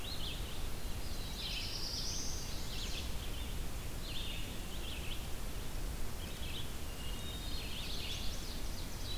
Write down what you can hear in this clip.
Red-eyed Vireo, Chestnut-sided Warbler, Black-throated Blue Warbler, Hermit Thrush, Ovenbird